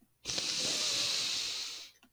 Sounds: Sniff